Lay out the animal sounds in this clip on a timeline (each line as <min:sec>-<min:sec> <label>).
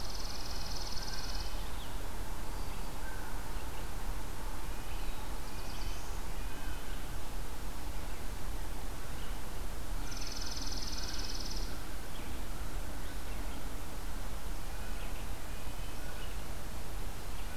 0:00.0-0:01.7 Chipping Sparrow (Spizella passerina)
0:00.0-0:17.6 Red-breasted Nuthatch (Sitta canadensis)
0:02.9-0:16.5 American Crow (Corvus brachyrhynchos)
0:04.8-0:06.6 Black-throated Blue Warbler (Setophaga caerulescens)
0:09.9-0:11.9 Chipping Sparrow (Spizella passerina)